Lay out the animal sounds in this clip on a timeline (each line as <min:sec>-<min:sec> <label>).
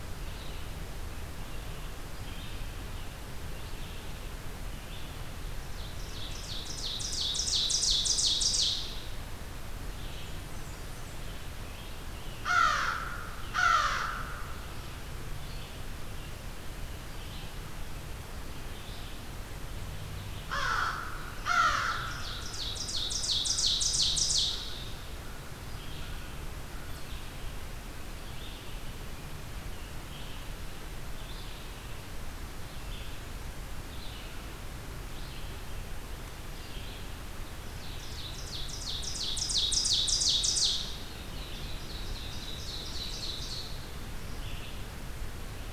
0:00.0-0:45.7 Red-eyed Vireo (Vireo olivaceus)
0:05.3-0:09.4 Ovenbird (Seiurus aurocapilla)
0:10.0-0:11.4 Golden-crowned Kinglet (Regulus satrapa)
0:12.2-0:14.6 American Crow (Corvus brachyrhynchos)
0:20.3-0:22.3 American Crow (Corvus brachyrhynchos)
0:22.0-0:24.8 Ovenbird (Seiurus aurocapilla)
0:37.3-0:43.7 Ovenbird (Seiurus aurocapilla)